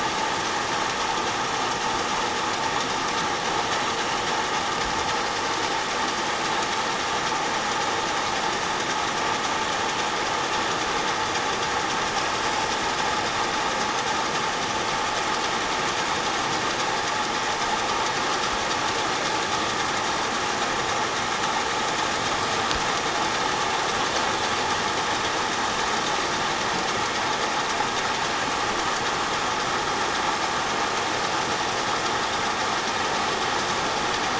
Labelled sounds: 11.1	11.4	vessel noise, 4.7 to 4.9 kHz

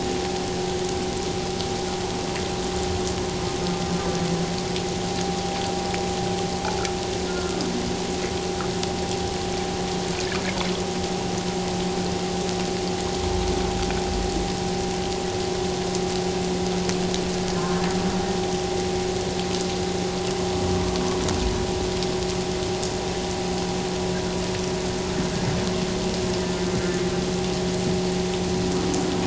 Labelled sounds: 7.3	7.6	humpback whale, 1.2 to 1.5 kHz
17.6	17.8	humpback whale, 1.0 to 1.1 kHz

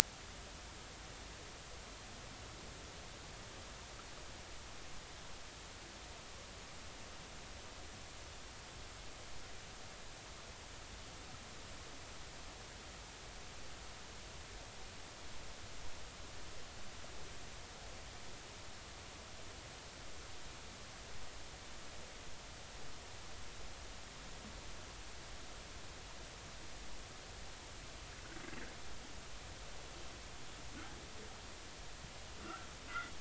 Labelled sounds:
32.4	32.7	humpback whale, 1.2 to 1.6 kHz

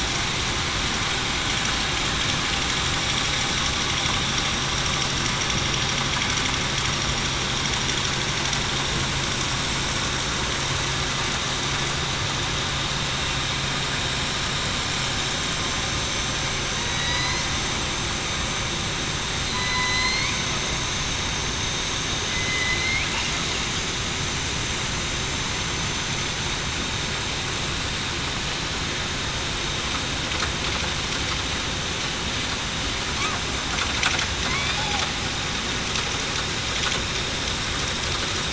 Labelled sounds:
16.7	17.5	killer whale, southern resident, 1.9 to 5.2 kHz
19.4	20.2	killer whale, southern resident, 4.0 to 4.4 kHz
22.3	22.8	killer whale, southern resident, 2.0 to 2.1 kHz
34.5	34.8	killer whale, southern resident, 2.0 to 2.5 kHz

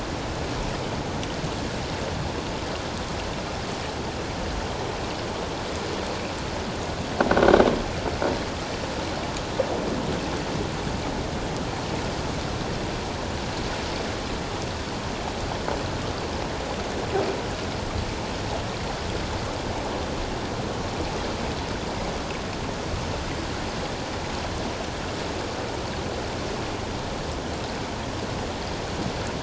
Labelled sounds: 7.4	7.6	croaking sound likely from a nearby submerged object, 1.4 to 1.6 kHz

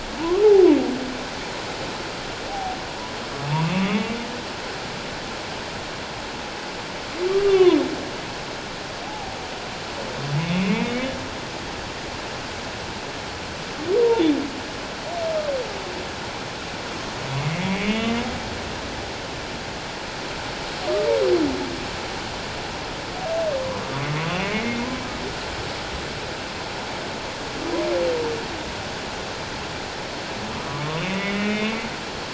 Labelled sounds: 2.5	2.8	humpback whale, 0.78 to 0.88 kHz
3.5	3.7	humpback whale, 0.88 to 1.2 kHz
7.4	7.8	humpback whale, 0.94 to 2.8 kHz
9.0	9.4	humpback whale, 0.78 to 0.91 kHz
10.5	11.1	humpback whale, 1.9 to 2.8 kHz
14.0	14.2	humpback whale, 0.88 to 1.0 kHz
17.4	18.2	humpback whale, 1.9 to 3.1 kHz
20.8	21.1	humpback whale, 1.1 to 1.2 kHz
23.9	24.9	humpback whale, 1.1 to 2.2 kHz
30.8	31.8	humpback whale, 1.0 to 3.0 kHz

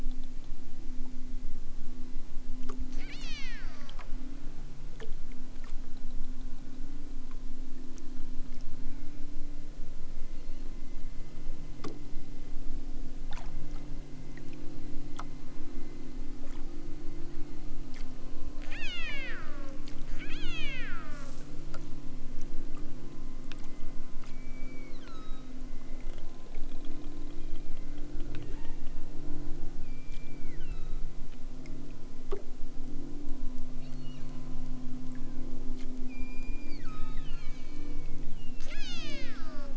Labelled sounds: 2.9	4.1	killer whale, southern Alaska resident, 0.64 to 7.9 kHz
10.1	10.7	killer whale, southern Alaska resident, 1.8 to 4.8 kHz
18.5	19.8	killer whale, southern Alaska resident, 0.78 to 8.0 kHz
20.1	21.4	killer whale, southern Alaska resident, 0.60 to 8.0 kHz
24.3	25.6	killer whale, southern Alaska resident, 1.1 to 5.1 kHz
28.4	28.8	killer whale, southern Alaska resident, 1.2 to 3.5 kHz
29.6	31.1	killer whale, southern Alaska resident, 0.83 to 5.4 kHz
33.7	34.5	killer whale, southern Alaska resident, 1.5 to 6.1 kHz
35.1	35.6	killer whale, southern Alaska resident, 0.92 to 2.9 kHz
36.0	39.7	killer whale, southern Alaska resident, 0.78 to 8.0 kHz

